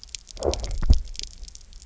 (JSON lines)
{"label": "biophony, low growl", "recorder": "SoundTrap 300"}